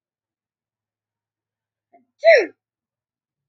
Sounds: Sneeze